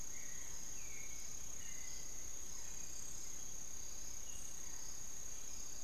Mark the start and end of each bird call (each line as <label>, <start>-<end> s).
Barred Forest-Falcon (Micrastur ruficollis), 0.0-5.8 s
Hauxwell's Thrush (Turdus hauxwelli), 0.0-5.8 s